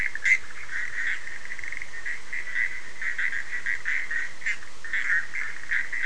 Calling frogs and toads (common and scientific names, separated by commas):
Bischoff's tree frog (Boana bischoffi)